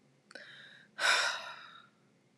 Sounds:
Sigh